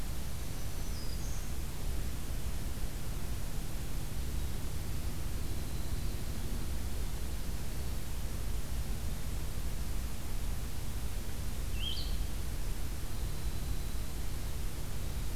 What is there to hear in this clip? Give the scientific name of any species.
Setophaga virens, Troglodytes hiemalis, Vireo solitarius